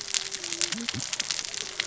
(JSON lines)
{"label": "biophony, cascading saw", "recorder": "SoundTrap 600 or HydroMoth"}